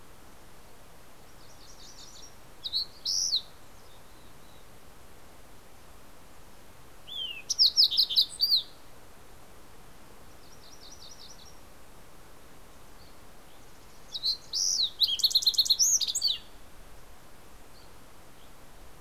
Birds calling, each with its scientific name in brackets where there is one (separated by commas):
Fox Sparrow (Passerella iliaca), Mountain Chickadee (Poecile gambeli), MacGillivray's Warbler (Geothlypis tolmiei)